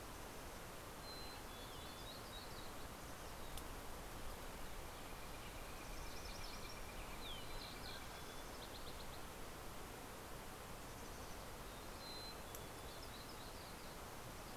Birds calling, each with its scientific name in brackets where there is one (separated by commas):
MacGillivray's Warbler (Geothlypis tolmiei), Northern Flicker (Colaptes auratus), Mountain Chickadee (Poecile gambeli), Mountain Quail (Oreortyx pictus)